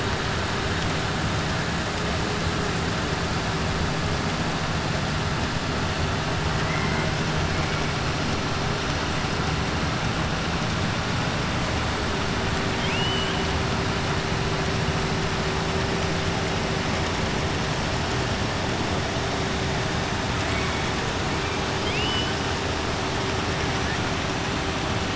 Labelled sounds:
12.7	13.4	killer whale, 2.1 to 3.4 kHz
21.7	22.4	killer whale, 2.1 to 5.3 kHz

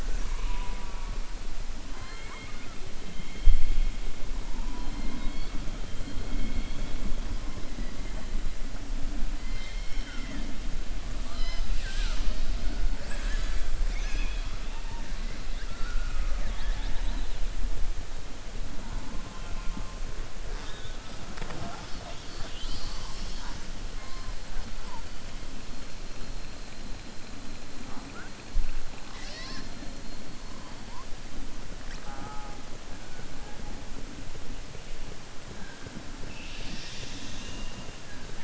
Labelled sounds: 3.1	3.6	killer whale, southern resident, 2.1 to 3.9 kHz
15.6	17.4	killer whale, southern resident, 0.55 to 4.8 kHz

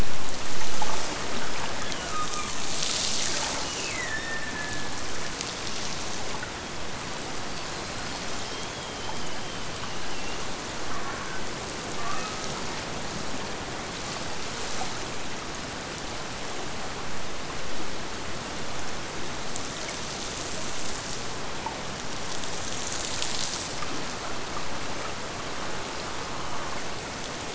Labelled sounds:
1.8	2.7	killer whale, Bigg's (transient), Gulf of Alaska transient, 1.0 to 3.5 kHz
3.6	5.1	killer whale, Bigg's (transient), Gulf of Alaska transient, 1.5 to 3.0 kHz

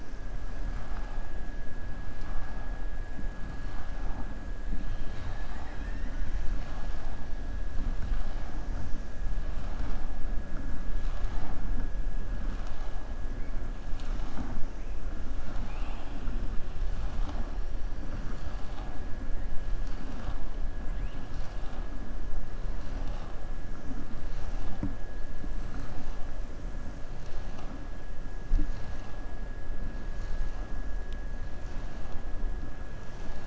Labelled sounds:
4.8	6.4	killer whale, southern resident, 0.75 to 5.3 kHz
15.4	16.2	killer whale, southern resident, 0.72 to 4.9 kHz

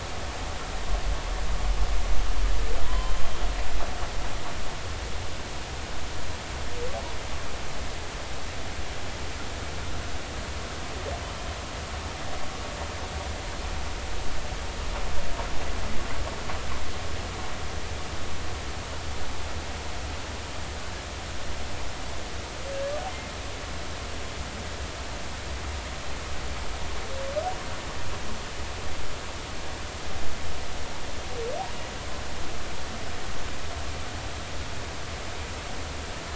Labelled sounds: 2.8	3.2	humpback whale, 0.90 to 3.2 kHz

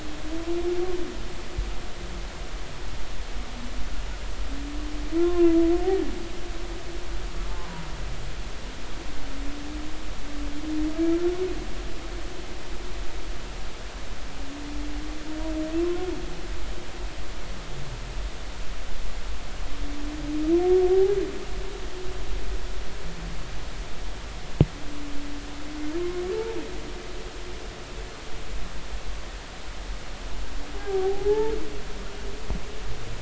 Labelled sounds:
5.2	5.5	humpback whale, 0.96 to 1.1 kHz
7.6	7.9	humpback whale, 0.90 to 1.1 kHz
15.8	16.1	humpback whale, 1.0 to 1.1 kHz
26.0	26.2	humpback whale, 1.0 to 1.1 kHz
30.8	31.5	humpback whale, 0.80 to 1.8 kHz

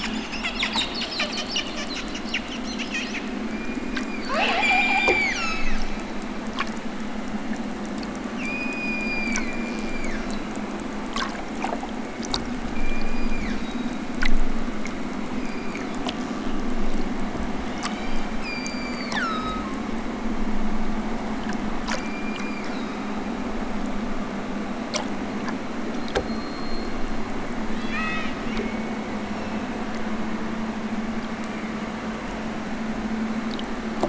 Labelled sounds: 3.4	5.8	killer whale, southern Alaska resident, 0.46 to 8.0 kHz
8.4	10.5	killer whale, southern Alaska resident, 0.64 to 8.0 kHz
11.7	13.9	killer whale, southern Alaska resident, 0.87 to 7.6 kHz
15.3	16.1	killer whale, southern Alaska resident, 1.2 to 7.2 kHz
17.6	19.7	killer whale, southern Alaska resident, 0.87 to 8.0 kHz
21.9	23.2	killer whale, southern Alaska resident, 0.87 to 5.1 kHz
27.7	28.4	killer whale, southern Alaska resident, 0.83 to 8.0 kHz
29.1	29.9	killer whale, southern Alaska resident, 2.3 to 6.1 kHz

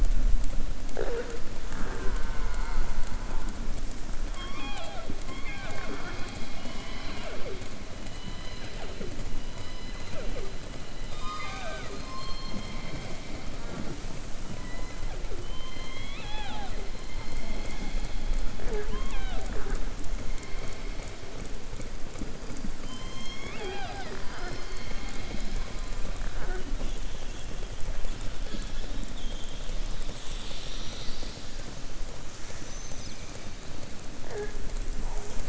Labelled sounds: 15.4	16.8	killer whale, southern resident, 0.75 to 4.2 kHz
22.8	25.6	killer whale, southern resident, 0.36 to 7.2 kHz
29.1	29.7	killer whale, southern resident, 3.1 to 3.8 kHz

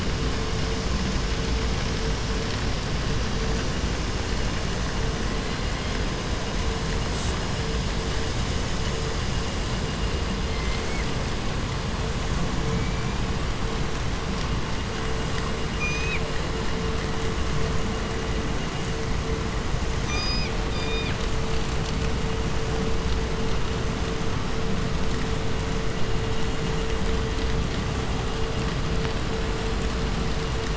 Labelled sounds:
5.2	6.1	killer whale, 1.1 to 4.7 kHz
7.1	7.5	killer whale, southern resident, J pod, call S05, 1.0 to 8.0 kHz
10.4	11.2	killer whale, 0.55 to 8.0 kHz
12.6	13.7	killer whale, 1.4 to 7.0 kHz
15.7	16.3	killer whale, 1.3 to 8.0 kHz
20.0	21.2	killer whale, 0.83 to 8.0 kHz

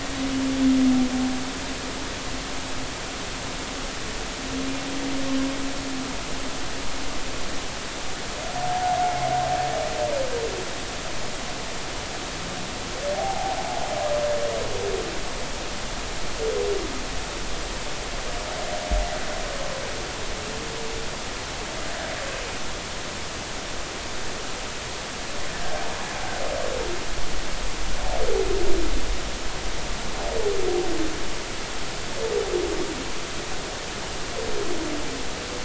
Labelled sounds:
8.7	9.0	humpback whale, 0.80 to 0.90 kHz
13.1	13.6	humpback whale, 0.80 to 0.93 kHz

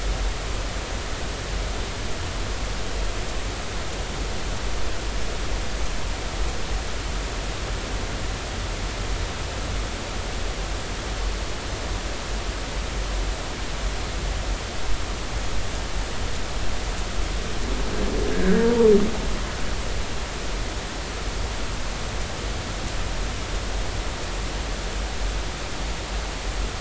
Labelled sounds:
18.3	18.9	humpback whale, 0.86 to 1.7 kHz

